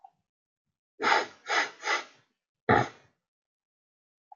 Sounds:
Sniff